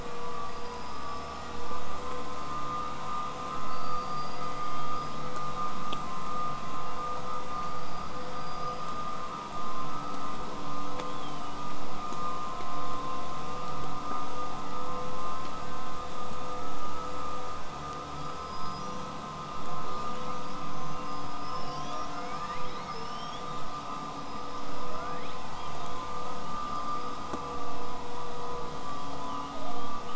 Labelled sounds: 0.4	1.8	killer whale, southern resident, 4.6 to 8.0 kHz
3.6	5.3	killer whale, southern resident, L pod, call S19, 1.4 to 8.0 kHz
7.6	9.1	killer whale, southern resident, 4.5 to 8.0 kHz
11.1	11.6	killer whale, southern resident, 2.9 to 8.0 kHz
18.2	19.1	killer whale, southern resident, 4.7 to 8.0 kHz
19.9	21.1	killer whale, southern resident, 2.6 to 8.0 kHz
22.9	23.8	killer whale, southern resident, 2.6 to 8.0 kHz
24.1	25.5	killer whale, southern resident, L pod, call S19, 1.3 to 5.4 kHz
25.5	26.0	killer whale, southern resident, 2.9 to 5.2 kHz
28.6	30.1	killer whale, southern resident, 0.38 to 8.0 kHz

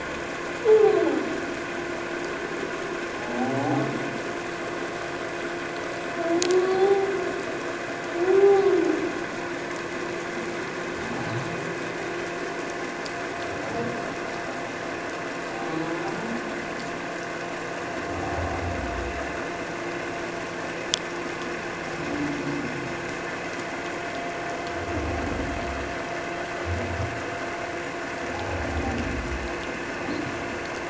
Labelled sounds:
3.2	3.5	humpback whale, 0.78 to 0.91 kHz
6.5	7.1	humpback whale, 0.78 to 4.3 kHz
8.4	8.7	humpback whale, 0.78 to 0.84 kHz

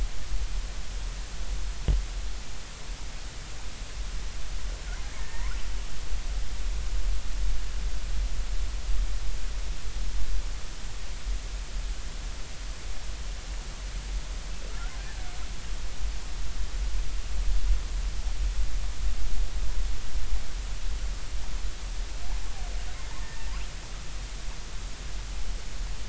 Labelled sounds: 5.2	5.6	killer whale, northern resident, R clan, call N33, 0.86 to 2.3 kHz
23.2	23.5	killer whale, northern resident, R clan, call N33, 1.8 to 1.9 kHz

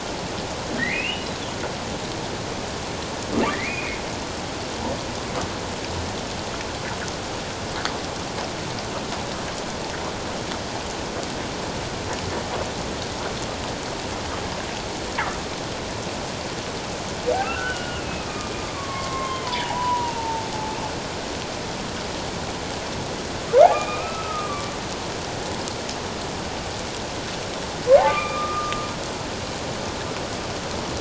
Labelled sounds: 3.5	4.0	humpback whale, 1.7 to 2.6 kHz
17.4	20.5	humpback whale, 0.78 to 3.2 kHz
23.7	24.7	humpback whale, 1.0 to 2.7 kHz
28.0	28.8	humpback whale, 1.0 to 2.5 kHz

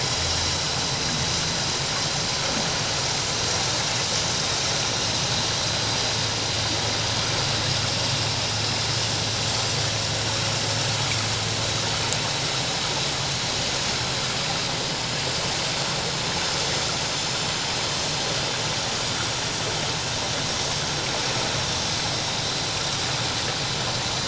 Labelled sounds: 5.5	5.7	vessel noise, 5.8 to 6.0 kHz

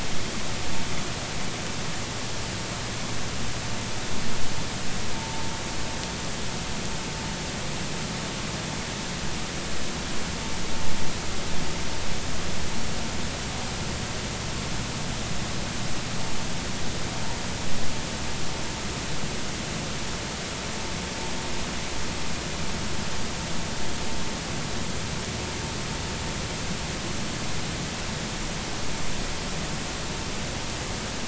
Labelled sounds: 5.2	5.5	vessel noise, 0.83 to 0.96 kHz

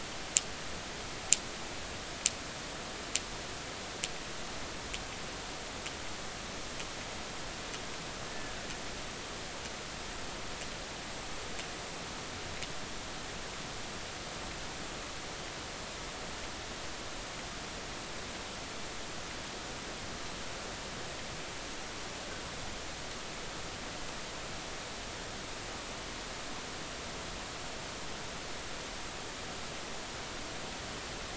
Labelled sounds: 8.3	8.6	killer whale, 1.6 to 1.9 kHz

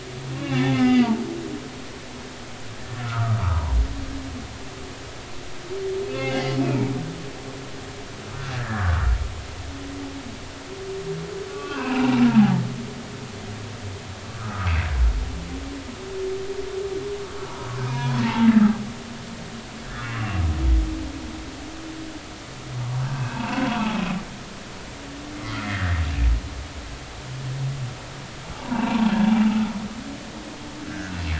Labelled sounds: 0.5	1.1	humpback whale, 0.80 to 4.8 kHz
3.0	3.6	humpback whale, 0.86 to 1.5 kHz
6.0	7.0	humpback whale, 2.0 to 2.7 kHz
8.5	9.1	humpback whale, 1.1 to 1.9 kHz
11.5	12.6	humpback whale, 0.80 to 2.8 kHz
14.3	14.7	humpback whale, 1.1 to 1.5 kHz
17.8	18.5	humpback whale, 0.83 to 6.1 kHz
19.8	20.1	humpback whale, 1.2 to 1.9 kHz
23.0	24.1	humpback whale, 0.80 to 2.8 kHz
25.3	26.0	humpback whale, 1.5 to 2.2 kHz
28.5	29.7	humpback whale, 0.80 to 2.9 kHz
30.9	31.1	humpback whale, 1.4 to 1.8 kHz

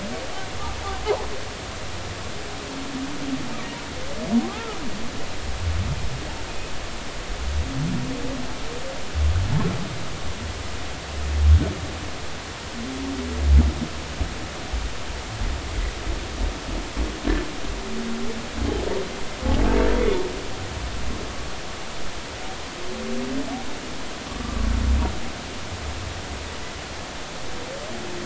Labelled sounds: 4.4	4.8	humpback whale, 0.99 to 1.4 kHz
6.5	6.7	humpback whale, 2.4 to 2.6 kHz
24.3	24.7	humpback whale, 1.1 to 1.2 kHz

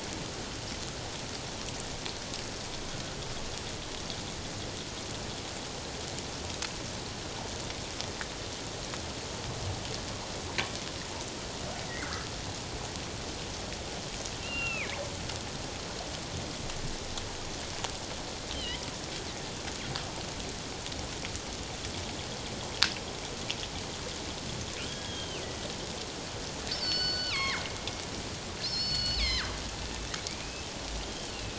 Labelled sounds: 12.0	12.3	killer whale, northern resident, G clan, 1.2 to 1.7 kHz
14.4	15.0	killer whale, northern resident, G clan, 1.2 to 2.9 kHz
18.5	18.8	killer whale, northern resident, G clan, 2.8 to 3.3 kHz
24.9	25.4	killer whale, northern resident, G clan, 1.6 to 3.4 kHz
26.7	27.6	killer whale, northern resident, G clan, 0.97 to 5.4 kHz
28.6	29.5	killer whale, northern resident, G clan, 1.2 to 5.5 kHz
30.3	30.7	killer whale, northern resident, G clan, 2.1 to 2.7 kHz
31.3	31.5	killer whale, northern resident, G clan, 2.5 to 2.9 kHz

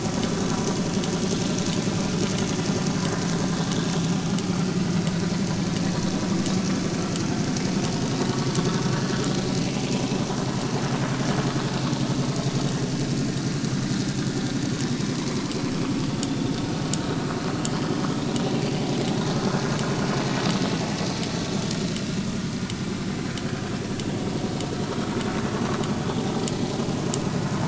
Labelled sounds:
18.6	18.8	vessel noise, 4.6 to 4.7 kHz

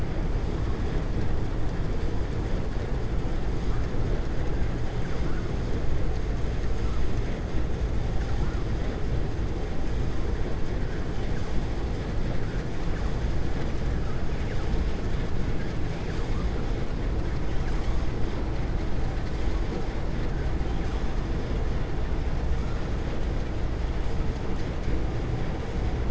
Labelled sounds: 4.9	5.4	vessel noise, 0.96 to 2.4 kHz

